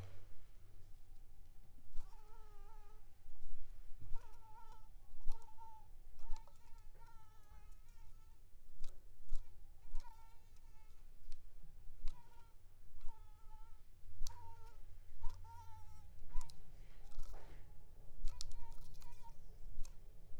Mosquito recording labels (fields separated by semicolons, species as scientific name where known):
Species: Anopheles coustani; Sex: female; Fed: unfed; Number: one; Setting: cup